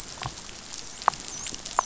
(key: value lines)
label: biophony, dolphin
recorder: SoundTrap 500